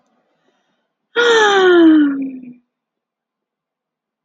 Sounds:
Sigh